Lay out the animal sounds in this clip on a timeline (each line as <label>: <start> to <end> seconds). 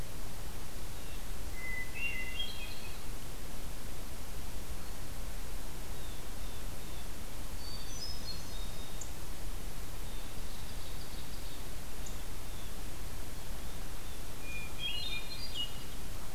Hermit Thrush (Catharus guttatus): 1.4 to 3.0 seconds
Blue Jay (Cyanocitta cristata): 5.8 to 7.1 seconds
Hermit Thrush (Catharus guttatus): 7.4 to 9.0 seconds
Ovenbird (Seiurus aurocapilla): 9.9 to 11.7 seconds
Blue Jay (Cyanocitta cristata): 11.8 to 12.7 seconds
Hermit Thrush (Catharus guttatus): 14.3 to 15.8 seconds